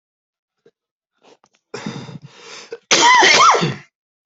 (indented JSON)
{
  "expert_labels": [
    {
      "quality": "ok",
      "cough_type": "dry",
      "dyspnea": false,
      "wheezing": true,
      "stridor": false,
      "choking": false,
      "congestion": false,
      "nothing": false,
      "diagnosis": "COVID-19",
      "severity": "unknown"
    }
  ],
  "age": 38,
  "gender": "male",
  "respiratory_condition": false,
  "fever_muscle_pain": false,
  "status": "healthy"
}